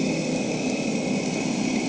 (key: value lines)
label: anthrophony, boat engine
recorder: HydroMoth